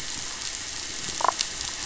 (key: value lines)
label: biophony, damselfish
recorder: SoundTrap 500